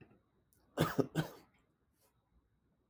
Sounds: Cough